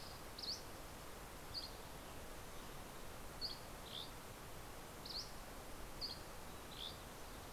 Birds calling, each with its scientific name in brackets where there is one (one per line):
Dusky Flycatcher (Empidonax oberholseri)